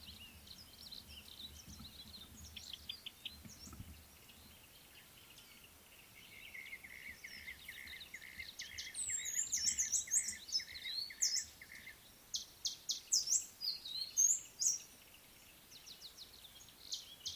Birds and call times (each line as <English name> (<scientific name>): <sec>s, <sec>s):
African Thrush (Turdus pelios): 3.0s
Brown-crowned Tchagra (Tchagra australis): 8.4s
Amethyst Sunbird (Chalcomitra amethystina): 10.0s